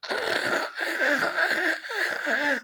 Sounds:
Throat clearing